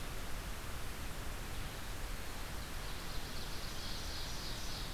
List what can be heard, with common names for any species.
Red-eyed Vireo, Ovenbird